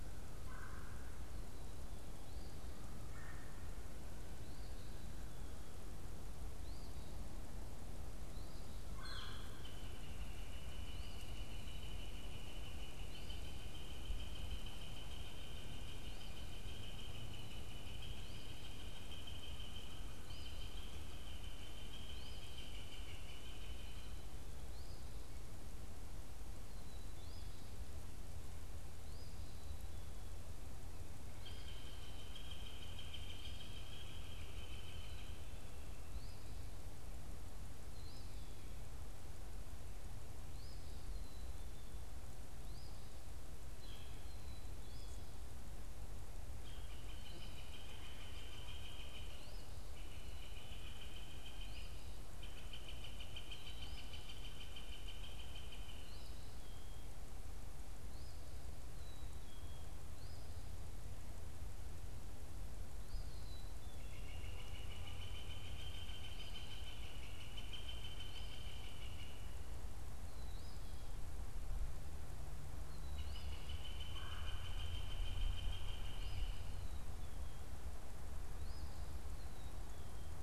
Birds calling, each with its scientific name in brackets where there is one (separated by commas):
Eastern Phoebe (Sayornis phoebe), Black-capped Chickadee (Poecile atricapillus), Red-bellied Woodpecker (Melanerpes carolinus), unidentified bird, Northern Flicker (Colaptes auratus)